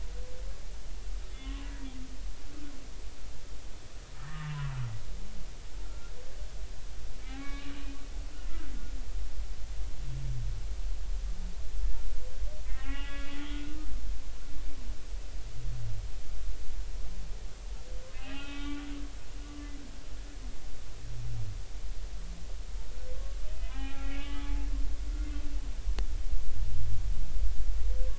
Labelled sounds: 1.3	1.7	humpback whale, 0.96 to 3.0 kHz
4.3	4.6	humpback whale, 1.1 to 1.3 kHz
5.8	6.1	humpback whale, 1.3 to 1.4 kHz
7.2	7.7	humpback whale, 1.1 to 2.3 kHz
12.7	13.8	humpback whale, 0.80 to 3.4 kHz
18.3	18.8	humpback whale, 1.1 to 2.6 kHz
23.4	24.7	humpback whale, 0.80 to 3.3 kHz

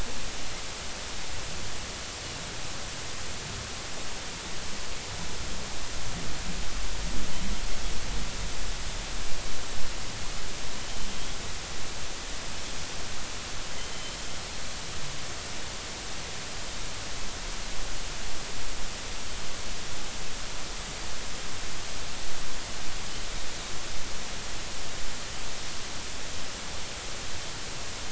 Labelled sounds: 13.8	14.2	Pacific white-sided dolphin, 3.0 to 3.2 kHz

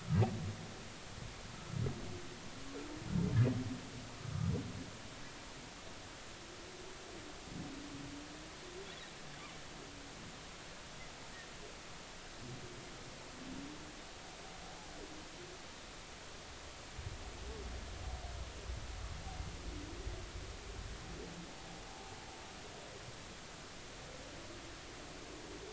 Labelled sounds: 21.9	22.1	humpback whale, 0.80 to 0.90 kHz

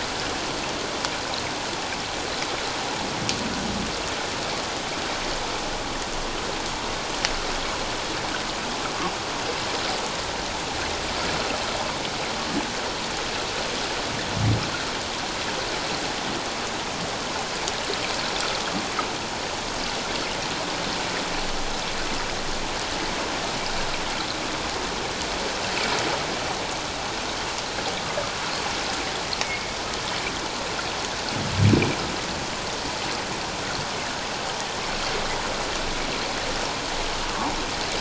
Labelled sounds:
29.4	29.8	humpback whale, 2.1 to 2.3 kHz

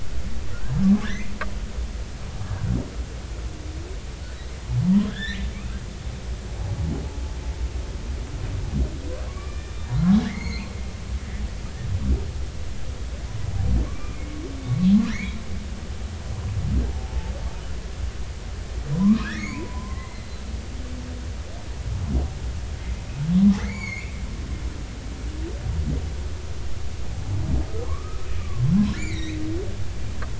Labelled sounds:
1.0	1.3	humpback whale, 1.5 to 2.2 kHz
5.0	5.5	humpback whale, 1.4 to 4.2 kHz
9.3	9.7	humpback whale, 0.99 to 2.4 kHz
10.2	10.7	humpback whale, 1.6 to 6.7 kHz
11.2	11.4	humpback whale, 1.7 to 2.0 kHz
13.9	14.2	humpback whale, 1.0 to 2.4 kHz
15.1	15.4	humpback whale, 1.6 to 2.5 kHz
17.1	17.3	humpback whale, 0.83 to 0.93 kHz
18.9	20.4	humpback whale, 0.93 to 4.6 kHz
23.6	24.1	humpback whale, 1.6 to 7.0 kHz
27.9	29.4	humpback whale, 0.83 to 4.3 kHz

